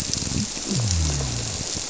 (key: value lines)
label: biophony
recorder: SoundTrap 300